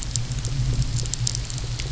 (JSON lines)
{"label": "anthrophony, boat engine", "recorder": "SoundTrap 300"}